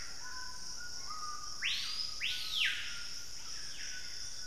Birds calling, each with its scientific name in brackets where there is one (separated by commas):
White-throated Toucan (Ramphastos tucanus), Screaming Piha (Lipaugus vociferans)